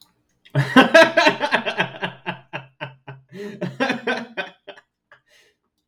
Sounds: Laughter